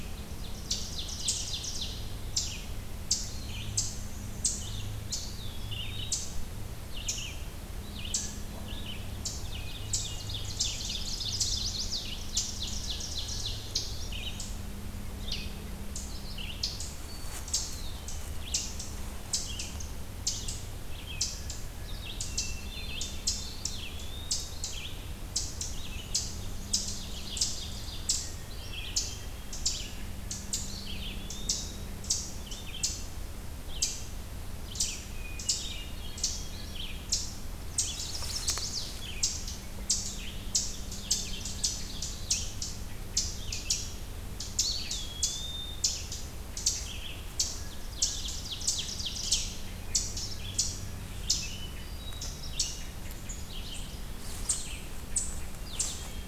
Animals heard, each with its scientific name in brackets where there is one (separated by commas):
Chestnut-sided Warbler (Setophaga pensylvanica), Ovenbird (Seiurus aurocapilla), Eastern Wood-Pewee (Contopus virens), Eastern Chipmunk (Tamias striatus), Red-eyed Vireo (Vireo olivaceus), Hermit Thrush (Catharus guttatus)